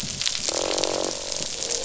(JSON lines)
{"label": "biophony, croak", "recorder": "SoundTrap 500"}